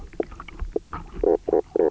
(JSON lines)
{"label": "biophony, knock croak", "recorder": "SoundTrap 300"}